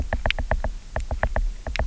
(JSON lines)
{"label": "biophony, knock", "recorder": "SoundTrap 300"}